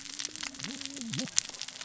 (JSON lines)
{"label": "biophony, cascading saw", "recorder": "SoundTrap 600 or HydroMoth"}